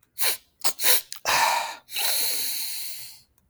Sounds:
Sniff